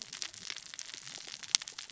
{"label": "biophony, cascading saw", "recorder": "SoundTrap 600 or HydroMoth"}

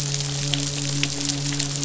{"label": "biophony, midshipman", "recorder": "SoundTrap 500"}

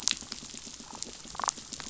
{"label": "biophony, damselfish", "recorder": "SoundTrap 500"}
{"label": "biophony", "recorder": "SoundTrap 500"}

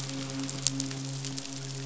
{"label": "biophony, midshipman", "recorder": "SoundTrap 500"}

